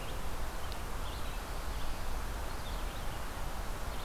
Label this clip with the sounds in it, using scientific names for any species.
Vireo olivaceus